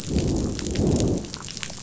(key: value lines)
label: biophony, growl
recorder: SoundTrap 500